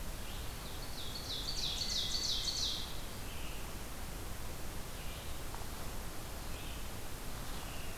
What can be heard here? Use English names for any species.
Ovenbird, Hermit Thrush, Red-eyed Vireo